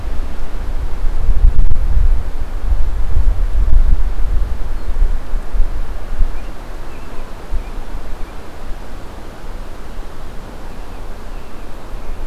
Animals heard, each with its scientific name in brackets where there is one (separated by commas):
American Robin (Turdus migratorius)